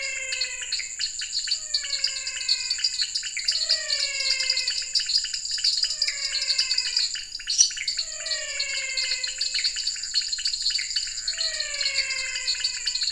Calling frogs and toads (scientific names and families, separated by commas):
Dendropsophus nanus (Hylidae), Leptodactylus podicipinus (Leptodactylidae), Physalaemus albonotatus (Leptodactylidae), Dendropsophus minutus (Hylidae)